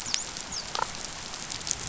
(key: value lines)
label: biophony, dolphin
recorder: SoundTrap 500